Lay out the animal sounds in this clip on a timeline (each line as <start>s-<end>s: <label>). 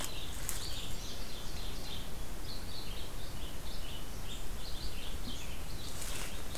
0.0s-6.6s: Red-eyed Vireo (Vireo olivaceus)
0.4s-2.0s: Ovenbird (Seiurus aurocapilla)